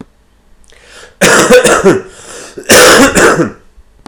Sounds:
Cough